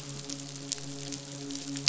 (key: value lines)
label: biophony, midshipman
recorder: SoundTrap 500